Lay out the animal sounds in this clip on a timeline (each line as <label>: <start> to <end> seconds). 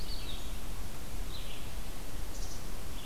Red-eyed Vireo (Vireo olivaceus): 0.0 to 3.0 seconds
Black-capped Chickadee (Poecile atricapillus): 2.2 to 2.7 seconds